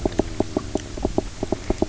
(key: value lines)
label: biophony, knock
recorder: SoundTrap 300